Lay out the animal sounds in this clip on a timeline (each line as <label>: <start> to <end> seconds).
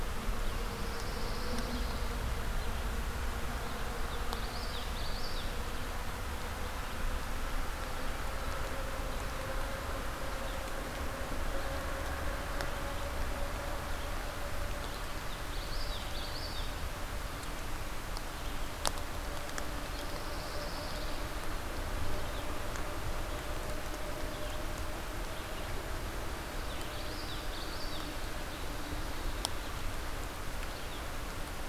Pine Warbler (Setophaga pinus): 0.5 to 2.1 seconds
Common Yellowthroat (Geothlypis trichas): 4.1 to 5.6 seconds
Common Yellowthroat (Geothlypis trichas): 15.3 to 16.7 seconds
Pine Warbler (Setophaga pinus): 20.0 to 21.3 seconds
Common Yellowthroat (Geothlypis trichas): 26.5 to 28.4 seconds